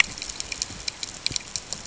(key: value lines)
label: ambient
recorder: HydroMoth